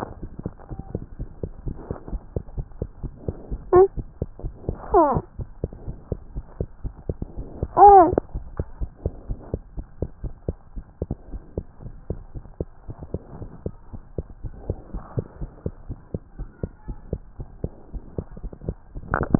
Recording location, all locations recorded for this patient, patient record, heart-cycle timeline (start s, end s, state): tricuspid valve (TV)
aortic valve (AV)+pulmonary valve (PV)+tricuspid valve (TV)+mitral valve (MV)
#Age: Infant
#Sex: Male
#Height: 80.0 cm
#Weight: 10.9 kg
#Pregnancy status: False
#Murmur: Absent
#Murmur locations: nan
#Most audible location: nan
#Systolic murmur timing: nan
#Systolic murmur shape: nan
#Systolic murmur grading: nan
#Systolic murmur pitch: nan
#Systolic murmur quality: nan
#Diastolic murmur timing: nan
#Diastolic murmur shape: nan
#Diastolic murmur grading: nan
#Diastolic murmur pitch: nan
#Diastolic murmur quality: nan
#Outcome: Normal
#Campaign: 2015 screening campaign
0.00	11.23	unannotated
11.23	11.31	diastole
11.31	11.39	S1
11.39	11.52	systole
11.52	11.63	S2
11.63	11.80	diastole
11.80	11.90	S1
11.90	12.08	systole
12.08	12.15	S2
12.15	12.32	diastole
12.32	12.41	S1
12.41	12.57	systole
12.57	12.68	S2
12.68	12.86	diastole
12.86	12.94	S1
12.94	13.12	systole
13.12	13.19	S2
13.19	13.39	diastole
13.39	13.49	S1
13.49	13.64	systole
13.64	13.71	S2
13.71	13.92	diastole
13.92	13.99	S1
13.99	14.16	systole
14.16	14.23	S2
14.23	14.41	diastole
14.41	14.51	S1
14.51	14.67	systole
14.67	14.75	S2
14.75	14.92	diastole
14.92	15.00	S1
15.00	15.15	systole
15.15	15.22	S2
15.22	15.38	diastole
15.38	15.50	S1
15.50	15.64	systole
15.64	15.72	S2
15.72	15.87	diastole
15.87	15.98	S1
15.98	16.12	systole
16.12	16.20	S2
16.20	16.38	diastole
16.38	16.49	S1
16.49	16.59	systole
16.59	16.70	S2
16.70	16.87	diastole
16.87	16.99	S1
16.99	17.12	systole
17.12	17.24	S2
17.24	17.37	diastole
17.37	17.47	S1
17.47	17.60	systole
17.60	17.71	S2
17.71	17.91	diastole
17.91	18.03	S1
18.03	18.13	systole
18.13	18.26	S2
18.26	18.38	diastole
18.38	18.48	S1
18.48	18.63	systole
18.63	18.75	S2
18.75	18.94	diastole
18.94	19.39	unannotated